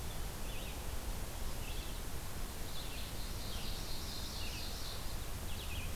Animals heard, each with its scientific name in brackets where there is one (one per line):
Ovenbird (Seiurus aurocapilla)
Red-eyed Vireo (Vireo olivaceus)